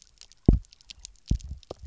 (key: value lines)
label: biophony, double pulse
recorder: SoundTrap 300